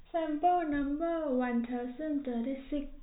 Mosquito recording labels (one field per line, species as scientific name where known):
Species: no mosquito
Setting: cup